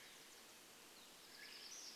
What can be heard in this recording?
Swainson's Thrush call, warbler song